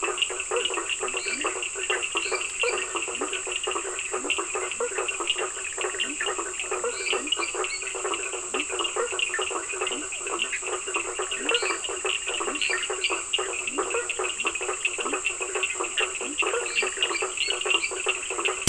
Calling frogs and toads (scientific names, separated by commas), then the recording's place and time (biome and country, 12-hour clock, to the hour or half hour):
Leptodactylus latrans, Boana faber, Sphaenorhynchus surdus, Dendropsophus minutus, Boana bischoffi, Physalaemus cuvieri
Atlantic Forest, Brazil, ~10pm